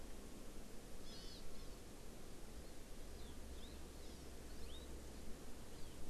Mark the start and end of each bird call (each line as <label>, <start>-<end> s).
Hawaii Amakihi (Chlorodrepanis virens), 1.1-1.8 s
Hawaii Amakihi (Chlorodrepanis virens), 4.0-4.4 s
Hawaii Amakihi (Chlorodrepanis virens), 5.7-6.0 s